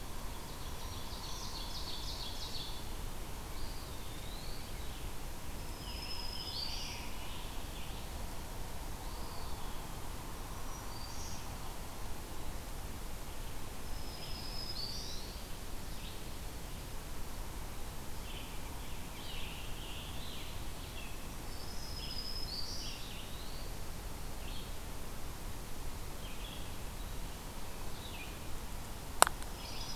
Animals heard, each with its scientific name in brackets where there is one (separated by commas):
Eastern Wood-Pewee (Contopus virens), Ovenbird (Seiurus aurocapilla), Scarlet Tanager (Piranga olivacea), Red-eyed Vireo (Vireo olivaceus), Black-throated Green Warbler (Setophaga virens)